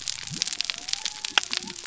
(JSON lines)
{"label": "biophony", "recorder": "SoundTrap 300"}